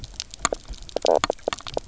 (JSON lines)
{"label": "biophony, knock croak", "recorder": "SoundTrap 300"}